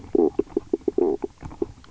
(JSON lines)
{"label": "biophony, knock croak", "recorder": "SoundTrap 300"}